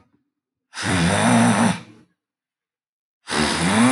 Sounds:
Sniff